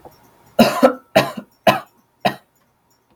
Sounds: Cough